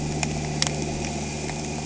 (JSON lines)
{"label": "anthrophony, boat engine", "recorder": "HydroMoth"}